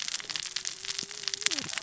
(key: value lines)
label: biophony, cascading saw
recorder: SoundTrap 600 or HydroMoth